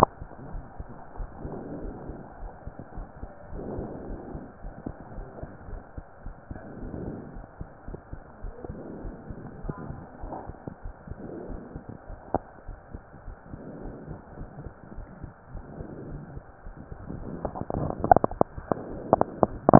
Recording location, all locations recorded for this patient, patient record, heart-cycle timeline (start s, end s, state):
pulmonary valve (PV)
pulmonary valve (PV)+tricuspid valve (TV)
#Age: Child
#Sex: Male
#Height: 133.0 cm
#Weight: 40.1 kg
#Pregnancy status: False
#Murmur: Unknown
#Murmur locations: nan
#Most audible location: nan
#Systolic murmur timing: nan
#Systolic murmur shape: nan
#Systolic murmur grading: nan
#Systolic murmur pitch: nan
#Systolic murmur quality: nan
#Diastolic murmur timing: nan
#Diastolic murmur shape: nan
#Diastolic murmur grading: nan
#Diastolic murmur pitch: nan
#Diastolic murmur quality: nan
#Outcome: Normal
#Campaign: 2015 screening campaign
0.00	0.50	unannotated
0.50	0.64	S1
0.64	0.76	systole
0.76	0.86	S2
0.86	1.18	diastole
1.18	1.30	S1
1.30	1.42	systole
1.42	1.56	S2
1.56	1.80	diastole
1.80	1.94	S1
1.94	2.06	systole
2.06	2.18	S2
2.18	2.40	diastole
2.40	2.52	S1
2.52	2.64	systole
2.64	2.74	S2
2.74	2.96	diastole
2.96	3.08	S1
3.08	3.22	systole
3.22	3.30	S2
3.30	3.52	diastole
3.52	3.66	S1
3.66	3.78	systole
3.78	3.90	S2
3.90	4.06	diastole
4.06	4.16	S1
4.16	4.31	systole
4.31	4.40	S2
4.40	4.62	diastole
4.62	4.74	S1
4.74	4.86	systole
4.86	4.96	S2
4.96	5.15	diastole
5.15	5.28	S1
5.28	5.40	systole
5.40	5.50	S2
5.50	5.69	diastole
5.69	5.82	S1
5.82	5.95	systole
5.95	6.04	S2
6.04	6.23	diastole
6.23	6.36	S1
6.36	6.50	systole
6.50	6.60	S2
6.60	6.82	diastole
6.82	6.94	S1
6.94	7.05	systole
7.05	7.18	S2
7.18	7.35	diastole
7.35	7.44	S1
7.44	7.58	systole
7.58	7.68	S2
7.68	7.88	diastole
7.88	7.98	S1
7.98	8.11	systole
8.11	8.20	S2
8.20	8.42	diastole
8.42	8.54	S1
8.54	8.67	systole
8.67	8.80	S2
8.80	9.01	diastole
9.01	9.16	S1
9.16	9.27	systole
9.27	9.40	S2
9.40	9.61	diastole
9.61	9.76	S1
9.76	9.88	systole
9.88	9.98	S2
9.98	10.21	diastole
10.21	10.34	S1
10.34	10.45	systole
10.45	10.56	S2
10.56	10.82	diastole
10.82	10.94	S1
10.94	11.07	systole
11.07	11.18	S2
11.18	11.47	diastole
11.47	11.60	S1
11.60	11.73	systole
11.73	11.84	S2
11.84	19.79	unannotated